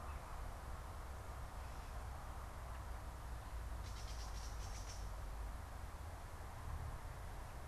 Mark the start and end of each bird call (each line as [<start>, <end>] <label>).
[3.58, 5.18] Gray Catbird (Dumetella carolinensis)